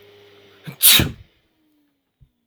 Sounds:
Sneeze